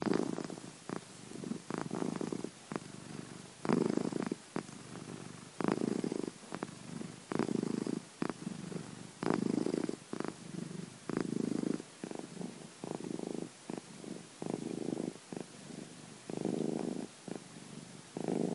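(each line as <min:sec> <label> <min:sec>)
0:00.0 A cat is purring steadily in an indoor environment. 0:18.5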